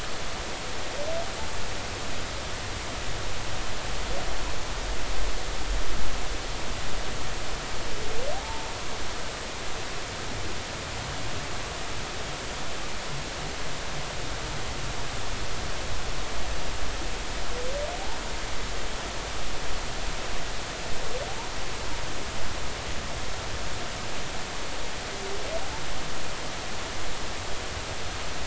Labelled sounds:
8.3	8.7	humpback whale, 0.80 to 0.96 kHz

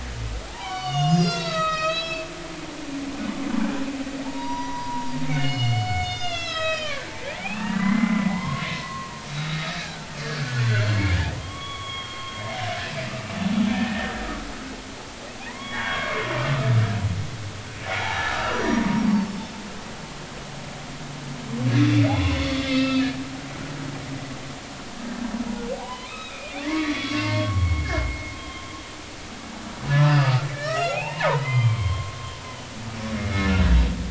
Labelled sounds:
0.5	2.3	humpback whale, 0.80 to 7.7 kHz
4.2	7.1	humpback whale, 0.83 to 7.1 kHz
7.4	10.7	humpback whale, 0.90 to 4.0 kHz
10.9	12.4	humpback whale, 0.93 to 3.4 kHz
13.7	14.1	humpback whale, 1.7 to 2.6 kHz
15.4	16.2	humpback whale, 0.90 to 3.4 kHz
17.8	19.4	humpback whale, 0.80 to 5.9 kHz
21.8	23.1	humpback whale, 1.2 to 4.8 kHz
25.8	28.7	humpback whale, 0.80 to 4.0 kHz
29.9	32.2	humpback whale, 0.80 to 7.1 kHz

